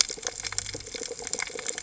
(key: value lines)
label: biophony
recorder: HydroMoth